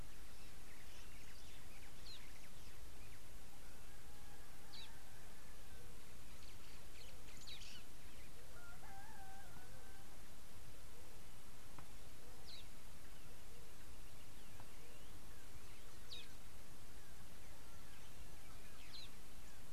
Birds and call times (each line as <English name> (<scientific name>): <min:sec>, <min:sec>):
Parrot-billed Sparrow (Passer gongonensis): 0:16.2